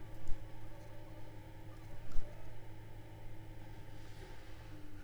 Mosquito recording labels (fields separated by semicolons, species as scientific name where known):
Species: Anopheles funestus s.s.; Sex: female; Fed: unfed; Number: one; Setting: cup